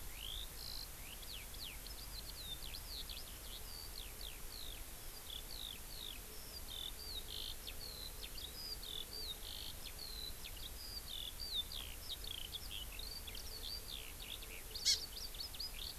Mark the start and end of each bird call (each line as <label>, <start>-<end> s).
Eurasian Skylark (Alauda arvensis), 0.0-16.0 s
Hawaii Amakihi (Chlorodrepanis virens), 14.7-15.0 s